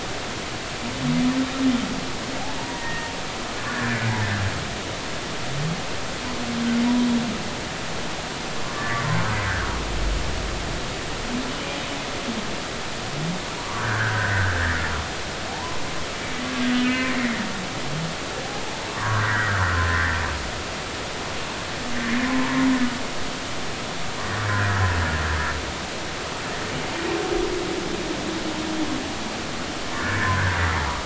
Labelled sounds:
2.6	3.1	humpback whale, 0.86 to 2.0 kHz
3.7	4.0	humpback whale, 1.4 to 1.8 kHz
8.7	9.3	humpback whale, 0.99 to 2.0 kHz
13.6	14.8	humpback whale, 1.1 to 2.1 kHz
15.5	15.8	humpback whale, 0.80 to 1.1 kHz
16.7	17.1	humpback whale, 1.7 to 2.6 kHz
18.9	19.9	humpback whale, 0.93 to 2.0 kHz
24.5	24.8	humpback whale, 1.4 to 2.0 kHz
29.9	30.6	humpback whale, 0.93 to 1.9 kHz

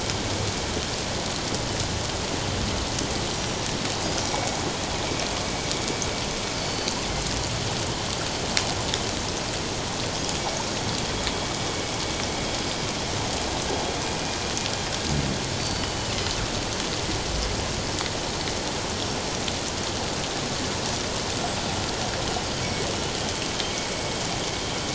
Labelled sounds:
3.3	3.6	killer whale, northern resident, G clan, 5.7 to 5.9 kHz
4.2	4.6	killer whale, northern resident, G clan, 2.1 to 2.3 kHz
6.6	7.0	killer whale, northern resident, G clan, 4.5 to 4.7 kHz
15.6	16.1	killer whale, northern resident, G clan, 2.9 to 4.7 kHz

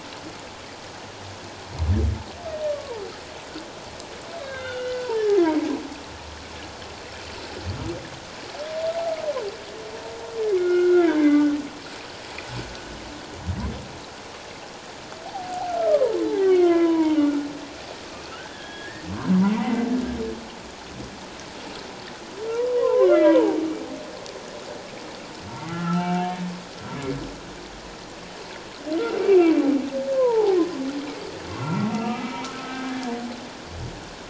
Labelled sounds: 2.7	3.0	humpback whale, 0.84 to 1.2 kHz
4.4	5.1	humpback whale, 1.3 to 3.8 kHz
10.5	11.6	humpback whale, 1.3 to 2.2 kHz
15.3	17.5	humpback whale, 0.78 to 2.3 kHz
18.3	19.0	humpback whale, 1.2 to 3.4 kHz
19.6	19.9	humpback whale, 1.9 to 2.1 kHz
22.7	23.6	humpback whale, 0.78 to 2.3 kHz
25.7	26.4	humpback whale, 0.78 to 3.0 kHz
29.3	29.6	humpback whale, 2.2 to 2.8 kHz
30.2	30.6	humpback whale, 0.78 to 1.1 kHz
31.6	33.1	humpback whale, 1.2 to 2.9 kHz

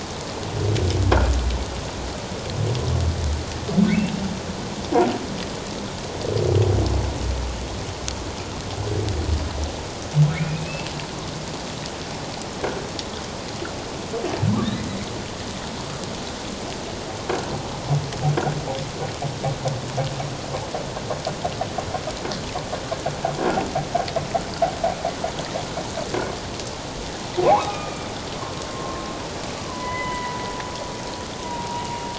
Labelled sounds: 10.3	10.9	humpback whale, 2.1 to 2.8 kHz
27.4	28.1	humpback whale, 0.78 to 2.6 kHz
28.7	30.4	humpback whale, 0.91 to 2.1 kHz
31.4	31.8	humpback whale, 0.88 to 1.0 kHz

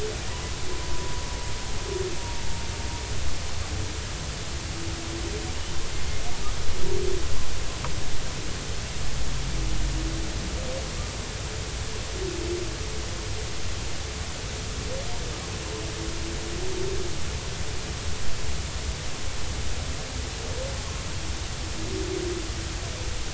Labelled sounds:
2.2	2.6	humpback whale, 0.86 to 0.96 kHz

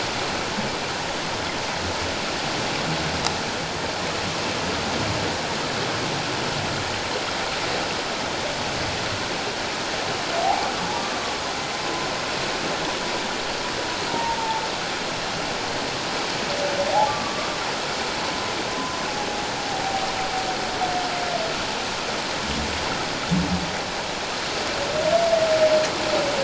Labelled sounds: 10.4	10.7	humpback whale, 0.78 to 0.94 kHz
14.1	14.6	humpback whale, 0.84 to 0.97 kHz
16.9	17.5	humpback whale, 0.78 to 1.2 kHz
18.7	19.0	humpback whale, 0.97 to 1.1 kHz

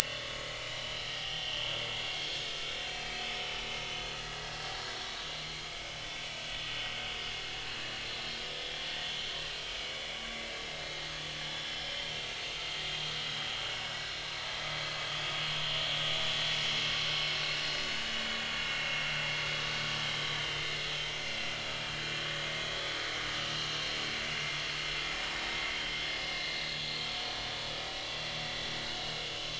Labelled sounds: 0.0	1.8	vessel noise, 2.7 to 3.6 kHz
2.1	2.5	vessel noise, 3.2 to 5.4 kHz
2.9	3.6	vessel noise, 2.5 to 3.1 kHz
4.7	5.6	vessel noise, 1.5 to 4.3 kHz
9.8	10.0	vessel noise, 2.2 to 2.4 kHz
18.5	19.0	vessel noise, 2.7 to 2.8 kHz
20.0	20.6	vessel noise, 3.0 to 3.2 kHz
21.7	22.0	vessel noise, 3.1 to 3.3 kHz

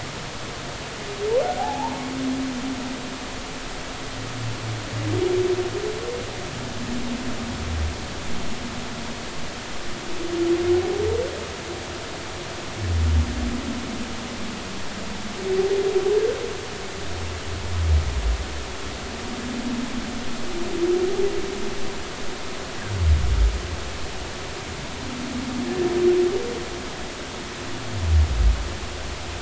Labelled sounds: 1.6	2.0	humpback whale, 0.80 to 1.1 kHz

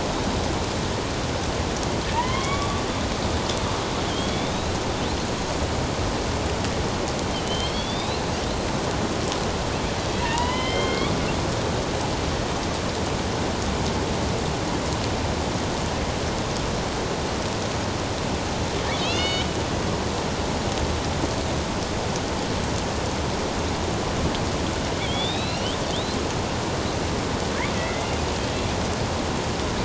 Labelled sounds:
2.1	2.8	killer whale, northern resident, A clan, AB subclan, 0.84 to 3.5 kHz
4.1	4.8	killer whale, northern resident, A clan, AB subclan, 3.1 to 4.1 kHz
7.3	8.2	killer whale, northern resident, A clan, AB subclan, 2.8 to 4.6 kHz
10.2	11.2	killer whale, northern resident, A clan, AB subclan, 0.84 to 4.3 kHz
19.0	19.5	killer whale, northern resident, A clan, AB subclan, 2.1 to 4.5 kHz
25.0	26.2	killer whale, northern resident, A clan, AB subclan, 2.1 to 4.4 kHz
27.8	28.1	killer whale, northern resident, A clan, AB subclan, 1.9 to 2.2 kHz

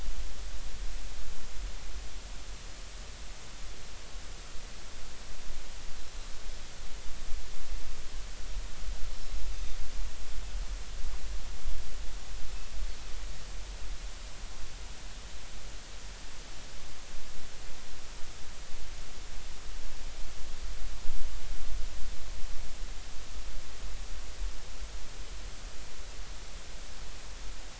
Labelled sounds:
9.5	9.8	Pacific white-sided dolphin, 3.6 to 3.7 kHz

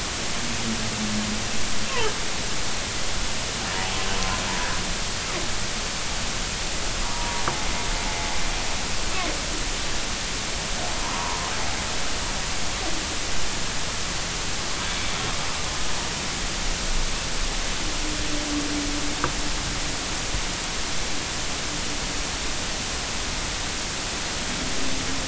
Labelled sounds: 7.0	7.4	humpback whale, 0.90 to 0.99 kHz
11.0	11.4	humpback whale, 0.90 to 1.2 kHz

